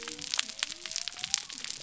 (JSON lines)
{"label": "biophony", "recorder": "SoundTrap 300"}